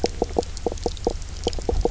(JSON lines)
{"label": "biophony, knock croak", "recorder": "SoundTrap 300"}